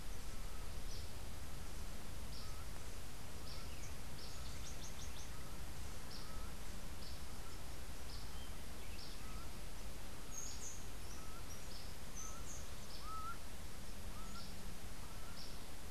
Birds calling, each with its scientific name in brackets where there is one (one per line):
Laughing Falcon (Herpetotheres cachinnans)
Yellow Warbler (Setophaga petechia)
Buff-throated Saltator (Saltator maximus)
House Wren (Troglodytes aedon)